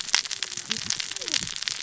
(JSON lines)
{"label": "biophony, cascading saw", "recorder": "SoundTrap 600 or HydroMoth"}